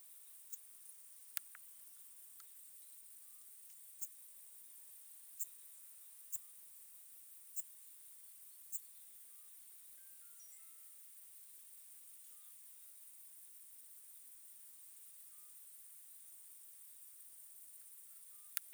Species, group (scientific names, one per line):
Eupholidoptera schmidti
Orthoptera